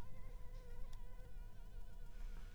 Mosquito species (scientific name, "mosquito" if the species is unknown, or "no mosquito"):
Anopheles arabiensis